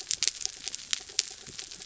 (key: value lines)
label: anthrophony, mechanical
recorder: SoundTrap 300